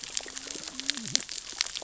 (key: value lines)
label: biophony, cascading saw
recorder: SoundTrap 600 or HydroMoth